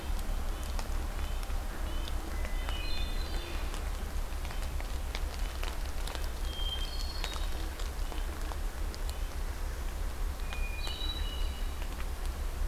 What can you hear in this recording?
Red-breasted Nuthatch, Hermit Thrush